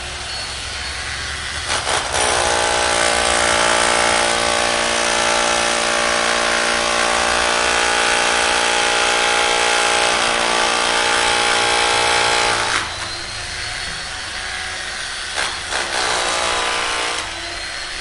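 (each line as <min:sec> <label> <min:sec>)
0:00.0 A metallic thumping sound repeats rhythmically with changing volume. 0:18.0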